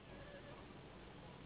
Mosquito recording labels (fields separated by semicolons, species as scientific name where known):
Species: Anopheles gambiae s.s.; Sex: female; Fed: unfed; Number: one; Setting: insect culture